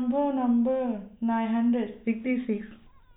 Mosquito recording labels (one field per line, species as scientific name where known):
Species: no mosquito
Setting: cup